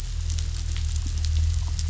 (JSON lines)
{"label": "anthrophony, boat engine", "recorder": "SoundTrap 500"}